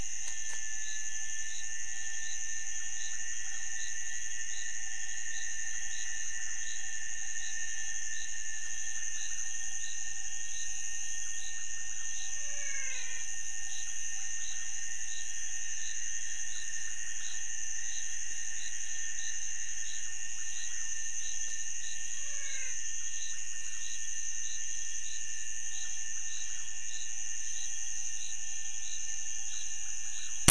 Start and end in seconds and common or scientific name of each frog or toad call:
12.2	13.4	menwig frog
22.1	23.1	menwig frog